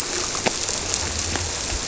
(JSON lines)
{"label": "biophony", "recorder": "SoundTrap 300"}